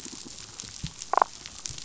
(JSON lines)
{"label": "biophony", "recorder": "SoundTrap 500"}
{"label": "biophony, damselfish", "recorder": "SoundTrap 500"}